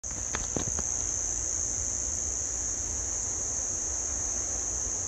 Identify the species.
Arunta perulata